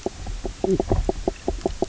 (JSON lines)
{"label": "biophony, knock croak", "recorder": "SoundTrap 300"}